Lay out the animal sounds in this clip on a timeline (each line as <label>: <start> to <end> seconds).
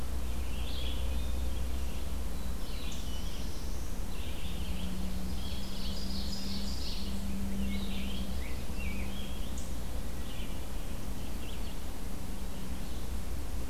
Red-eyed Vireo (Vireo olivaceus): 0.0 to 13.7 seconds
Black-throated Blue Warbler (Setophaga caerulescens): 2.1 to 4.2 seconds
Ovenbird (Seiurus aurocapilla): 5.1 to 7.3 seconds
Rose-breasted Grosbeak (Pheucticus ludovicianus): 7.4 to 9.7 seconds